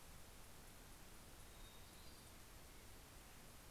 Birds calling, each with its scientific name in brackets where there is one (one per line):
Hermit Thrush (Catharus guttatus)